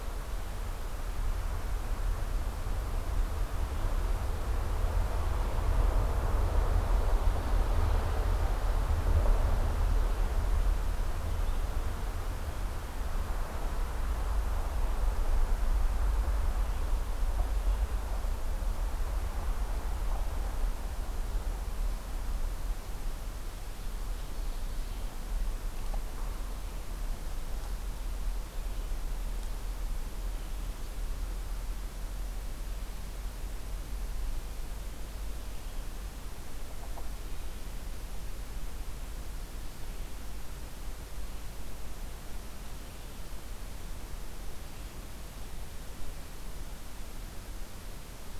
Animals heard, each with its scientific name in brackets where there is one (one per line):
Ovenbird (Seiurus aurocapilla)